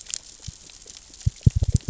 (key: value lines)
label: biophony, knock
recorder: SoundTrap 600 or HydroMoth